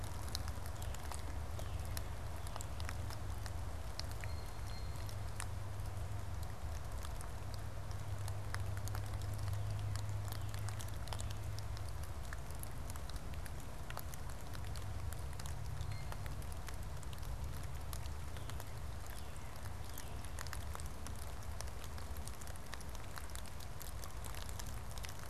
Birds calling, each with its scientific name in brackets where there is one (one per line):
Blue Jay (Cyanocitta cristata)
Northern Cardinal (Cardinalis cardinalis)